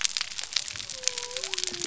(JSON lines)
{"label": "biophony", "recorder": "SoundTrap 300"}